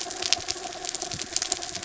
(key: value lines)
label: anthrophony, mechanical
recorder: SoundTrap 300